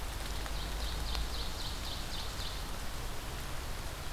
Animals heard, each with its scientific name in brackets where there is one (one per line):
Ovenbird (Seiurus aurocapilla)